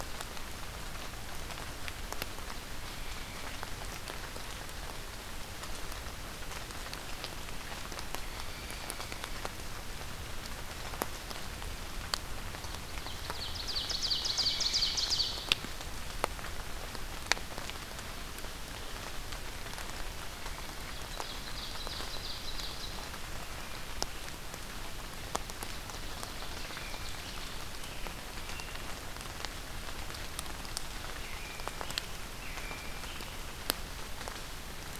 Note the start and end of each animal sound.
8.1s-9.3s: Pileated Woodpecker (Dryocopus pileatus)
13.2s-15.7s: Ovenbird (Seiurus aurocapilla)
14.2s-15.2s: Pileated Woodpecker (Dryocopus pileatus)
20.8s-23.2s: Ovenbird (Seiurus aurocapilla)
25.6s-27.5s: Ovenbird (Seiurus aurocapilla)
26.8s-28.9s: American Robin (Turdus migratorius)
31.0s-33.5s: American Robin (Turdus migratorius)

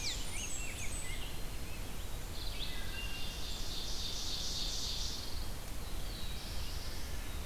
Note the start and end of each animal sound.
0.0s-1.2s: Blackburnian Warbler (Setophaga fusca)
0.0s-1.4s: Rose-breasted Grosbeak (Pheucticus ludovicianus)
2.4s-5.4s: Ovenbird (Seiurus aurocapilla)
2.4s-3.8s: Wood Thrush (Hylocichla mustelina)
4.5s-5.6s: Pine Warbler (Setophaga pinus)
5.8s-7.3s: Black-throated Blue Warbler (Setophaga caerulescens)

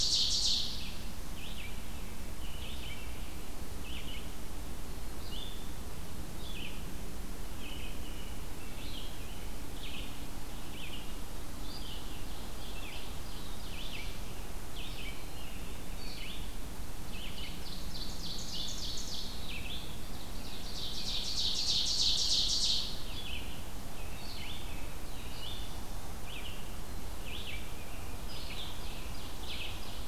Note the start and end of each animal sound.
0.0s-1.1s: Ovenbird (Seiurus aurocapilla)
0.0s-30.1s: Red-eyed Vireo (Vireo olivaceus)
1.7s-3.5s: American Robin (Turdus migratorius)
7.5s-9.6s: American Robin (Turdus migratorius)
12.0s-13.9s: Ovenbird (Seiurus aurocapilla)
13.1s-14.4s: Black-throated Blue Warbler (Setophaga caerulescens)
14.9s-16.4s: American Robin (Turdus migratorius)
15.0s-16.2s: Black-capped Chickadee (Poecile atricapillus)
17.1s-19.5s: Ovenbird (Seiurus aurocapilla)
20.2s-23.0s: Ovenbird (Seiurus aurocapilla)
23.8s-25.5s: American Robin (Turdus migratorius)
27.7s-29.2s: American Robin (Turdus migratorius)
28.3s-30.1s: Ovenbird (Seiurus aurocapilla)

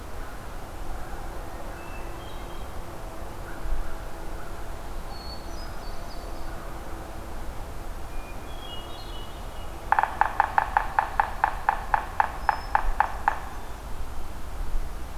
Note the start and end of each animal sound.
0.0s-1.4s: American Crow (Corvus brachyrhynchos)
1.6s-3.0s: Hermit Thrush (Catharus guttatus)
3.4s-4.7s: American Crow (Corvus brachyrhynchos)
4.9s-6.6s: Hermit Thrush (Catharus guttatus)
8.1s-9.7s: Hermit Thrush (Catharus guttatus)
9.7s-13.5s: Yellow-bellied Sapsucker (Sphyrapicus varius)

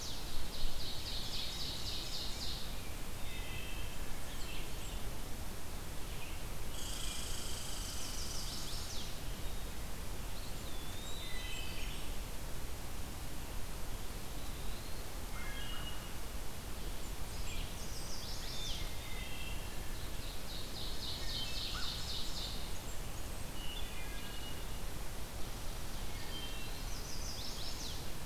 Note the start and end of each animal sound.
0.0s-17.7s: Red-eyed Vireo (Vireo olivaceus)
0.3s-2.8s: Ovenbird (Seiurus aurocapilla)
3.1s-4.1s: Wood Thrush (Hylocichla mustelina)
3.7s-5.0s: Blackburnian Warbler (Setophaga fusca)
6.7s-9.0s: Red Squirrel (Tamiasciurus hudsonicus)
7.7s-9.2s: Chestnut-sided Warbler (Setophaga pensylvanica)
10.2s-11.7s: Eastern Wood-Pewee (Contopus virens)
10.3s-12.2s: Blackburnian Warbler (Setophaga fusca)
11.1s-12.0s: Wood Thrush (Hylocichla mustelina)
14.0s-15.1s: Eastern Wood-Pewee (Contopus virens)
15.1s-16.3s: Wood Thrush (Hylocichla mustelina)
15.1s-16.2s: American Crow (Corvus brachyrhynchos)
16.7s-18.2s: Blackburnian Warbler (Setophaga fusca)
17.6s-19.0s: Chestnut-sided Warbler (Setophaga pensylvanica)
18.5s-19.8s: Wood Thrush (Hylocichla mustelina)
19.8s-22.7s: Ovenbird (Seiurus aurocapilla)
21.4s-22.1s: American Crow (Corvus brachyrhynchos)
22.1s-23.5s: Blackburnian Warbler (Setophaga fusca)
23.5s-25.0s: Wood Thrush (Hylocichla mustelina)
25.9s-26.9s: Wood Thrush (Hylocichla mustelina)
26.6s-28.2s: Chestnut-sided Warbler (Setophaga pensylvanica)

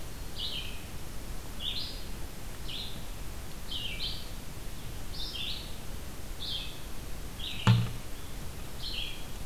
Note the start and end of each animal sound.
0.0s-9.5s: Red-eyed Vireo (Vireo olivaceus)

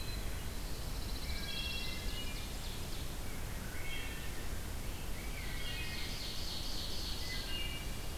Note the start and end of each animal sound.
0.2s-2.3s: Pine Warbler (Setophaga pinus)
1.2s-2.6s: Wood Thrush (Hylocichla mustelina)
1.3s-3.1s: Ovenbird (Seiurus aurocapilla)
3.5s-4.3s: Wood Thrush (Hylocichla mustelina)
5.0s-7.8s: Ovenbird (Seiurus aurocapilla)
5.2s-6.2s: Wood Thrush (Hylocichla mustelina)
7.2s-8.2s: Wood Thrush (Hylocichla mustelina)

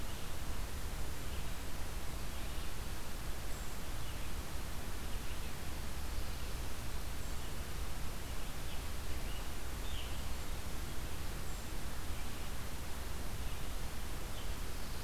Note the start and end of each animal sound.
0.0s-15.0s: Red-eyed Vireo (Vireo olivaceus)
6.4s-7.7s: Eastern Wood-Pewee (Contopus virens)
7.9s-10.2s: Scarlet Tanager (Piranga olivacea)

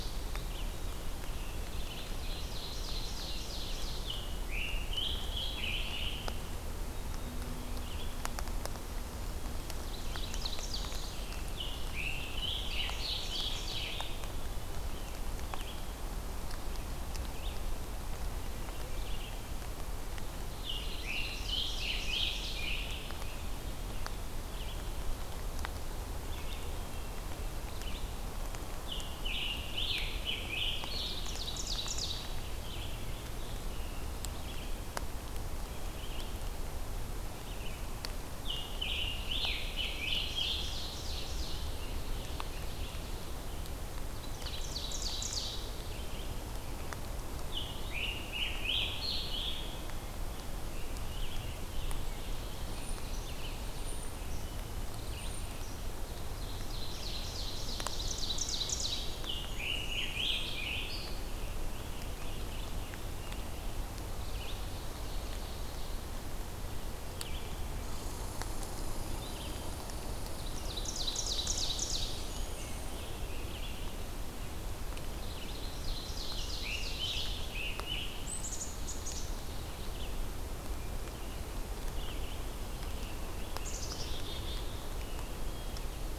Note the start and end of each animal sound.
0.1s-3.0s: Scarlet Tanager (Piranga olivacea)
1.7s-4.3s: Ovenbird (Seiurus aurocapilla)
4.0s-6.6s: Scarlet Tanager (Piranga olivacea)
6.8s-8.0s: Black-capped Chickadee (Poecile atricapillus)
7.8s-55.4s: Red-eyed Vireo (Vireo olivaceus)
9.7s-11.3s: Ovenbird (Seiurus aurocapilla)
11.2s-13.9s: Scarlet Tanager (Piranga olivacea)
12.4s-14.3s: Ovenbird (Seiurus aurocapilla)
20.3s-23.4s: Scarlet Tanager (Piranga olivacea)
20.6s-22.7s: Ovenbird (Seiurus aurocapilla)
26.7s-27.8s: Hermit Thrush (Catharus guttatus)
28.7s-34.3s: Scarlet Tanager (Piranga olivacea)
30.9s-32.4s: Ovenbird (Seiurus aurocapilla)
38.0s-40.9s: Scarlet Tanager (Piranga olivacea)
40.2s-43.5s: Ovenbird (Seiurus aurocapilla)
41.3s-43.8s: Scarlet Tanager (Piranga olivacea)
44.0s-45.7s: Ovenbird (Seiurus aurocapilla)
47.4s-53.1s: Scarlet Tanager (Piranga olivacea)
52.1s-54.3s: Ovenbird (Seiurus aurocapilla)
52.6s-55.7s: Golden-crowned Kinglet (Regulus satrapa)
56.0s-59.2s: Ovenbird (Seiurus aurocapilla)
59.1s-63.9s: Scarlet Tanager (Piranga olivacea)
59.1s-60.7s: Blackburnian Warbler (Setophaga fusca)
64.0s-66.2s: Ovenbird (Seiurus aurocapilla)
67.0s-86.2s: Red-eyed Vireo (Vireo olivaceus)
67.8s-73.2s: Red Squirrel (Tamiasciurus hudsonicus)
70.3s-72.5s: Ovenbird (Seiurus aurocapilla)
71.7s-74.1s: Scarlet Tanager (Piranga olivacea)
71.7s-73.0s: Blackburnian Warbler (Setophaga fusca)
75.1s-77.6s: Ovenbird (Seiurus aurocapilla)
76.4s-78.7s: Scarlet Tanager (Piranga olivacea)
78.2s-79.3s: Black-capped Chickadee (Poecile atricapillus)
83.4s-85.2s: Black-capped Chickadee (Poecile atricapillus)
85.2s-86.1s: Hermit Thrush (Catharus guttatus)

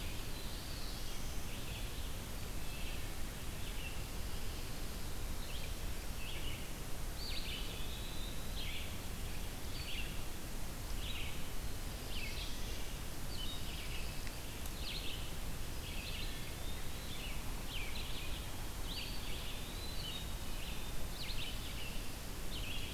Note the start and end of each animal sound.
0.0s-1.6s: Black-throated Blue Warbler (Setophaga caerulescens)
0.0s-10.3s: Red-eyed Vireo (Vireo olivaceus)
7.1s-8.7s: Eastern Wood-Pewee (Contopus virens)
10.9s-22.9s: Red-eyed Vireo (Vireo olivaceus)
11.5s-13.2s: Black-throated Blue Warbler (Setophaga caerulescens)
13.4s-14.5s: Pine Warbler (Setophaga pinus)
15.6s-17.3s: Eastern Wood-Pewee (Contopus virens)
16.1s-16.6s: Wood Thrush (Hylocichla mustelina)
19.0s-20.1s: Eastern Wood-Pewee (Contopus virens)

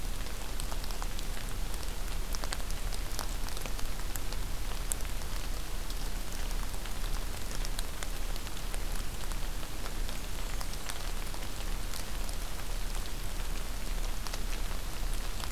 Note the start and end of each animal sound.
9.9s-11.1s: Black-and-white Warbler (Mniotilta varia)

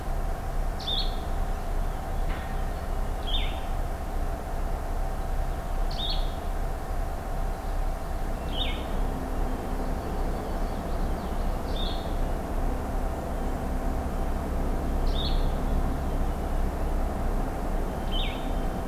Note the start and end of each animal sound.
0.6s-18.5s: Blue-headed Vireo (Vireo solitarius)
9.6s-10.9s: Yellow-rumped Warbler (Setophaga coronata)
10.6s-11.6s: Common Yellowthroat (Geothlypis trichas)

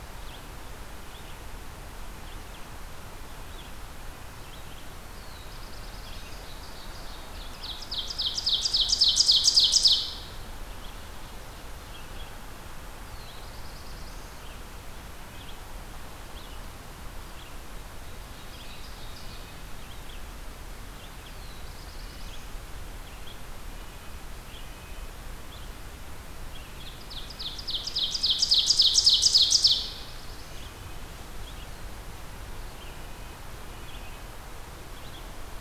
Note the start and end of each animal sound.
0.0s-35.6s: Red-eyed Vireo (Vireo olivaceus)
4.9s-6.5s: Black-throated Blue Warbler (Setophaga caerulescens)
6.0s-10.3s: Ovenbird (Seiurus aurocapilla)
13.0s-14.4s: Black-throated Blue Warbler (Setophaga caerulescens)
18.0s-19.4s: Ovenbird (Seiurus aurocapilla)
20.9s-22.5s: Black-throated Blue Warbler (Setophaga caerulescens)
21.9s-25.2s: Red-breasted Nuthatch (Sitta canadensis)
26.7s-29.9s: Ovenbird (Seiurus aurocapilla)
29.7s-30.7s: Black-throated Blue Warbler (Setophaga caerulescens)
32.8s-35.6s: Red-breasted Nuthatch (Sitta canadensis)

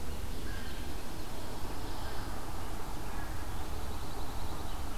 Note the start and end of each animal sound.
0.2s-1.8s: American Crow (Corvus brachyrhynchos)
3.3s-5.0s: Pine Warbler (Setophaga pinus)

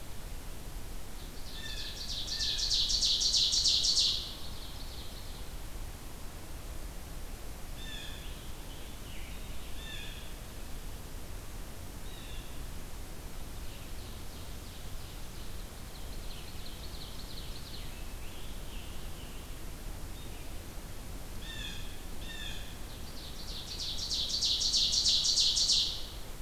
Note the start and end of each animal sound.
0.9s-5.5s: Ovenbird (Seiurus aurocapilla)
1.5s-2.8s: Blue Jay (Cyanocitta cristata)
7.6s-8.4s: Blue Jay (Cyanocitta cristata)
7.8s-10.2s: Scarlet Tanager (Piranga olivacea)
9.6s-10.3s: Blue Jay (Cyanocitta cristata)
11.9s-12.6s: Blue Jay (Cyanocitta cristata)
13.4s-17.9s: Ovenbird (Seiurus aurocapilla)
17.6s-19.6s: Scarlet Tanager (Piranga olivacea)
21.1s-22.7s: Blue Jay (Cyanocitta cristata)
22.7s-26.4s: Ovenbird (Seiurus aurocapilla)

